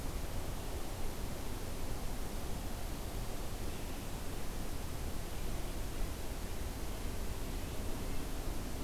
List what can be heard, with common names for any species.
forest ambience